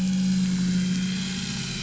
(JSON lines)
{"label": "anthrophony, boat engine", "recorder": "SoundTrap 500"}